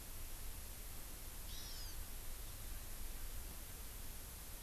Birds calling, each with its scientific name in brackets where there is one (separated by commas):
Hawaii Amakihi (Chlorodrepanis virens)